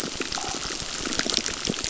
{"label": "biophony, crackle", "recorder": "SoundTrap 600"}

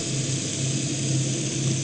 {"label": "anthrophony, boat engine", "recorder": "HydroMoth"}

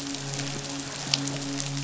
{"label": "biophony, midshipman", "recorder": "SoundTrap 500"}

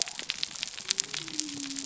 {"label": "biophony", "recorder": "SoundTrap 300"}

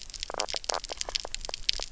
{"label": "biophony, knock croak", "recorder": "SoundTrap 300"}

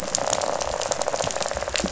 {"label": "biophony, rattle", "recorder": "SoundTrap 500"}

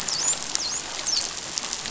{"label": "biophony, dolphin", "recorder": "SoundTrap 500"}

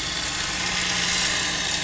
{"label": "anthrophony, boat engine", "recorder": "SoundTrap 500"}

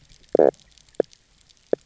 {"label": "biophony, knock croak", "recorder": "SoundTrap 300"}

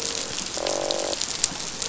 {"label": "biophony, croak", "recorder": "SoundTrap 500"}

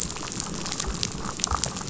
{"label": "biophony, damselfish", "recorder": "SoundTrap 500"}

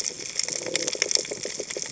{"label": "biophony", "recorder": "HydroMoth"}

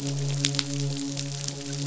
{"label": "biophony, midshipman", "recorder": "SoundTrap 500"}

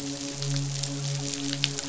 {"label": "biophony, midshipman", "recorder": "SoundTrap 500"}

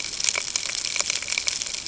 {"label": "ambient", "recorder": "HydroMoth"}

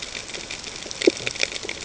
{"label": "ambient", "recorder": "HydroMoth"}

